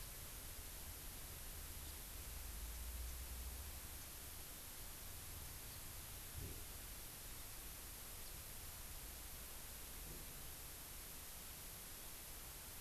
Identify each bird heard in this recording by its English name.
House Finch